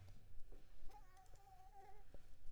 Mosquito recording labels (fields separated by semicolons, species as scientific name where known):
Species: Anopheles arabiensis; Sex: female; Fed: unfed; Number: one; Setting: cup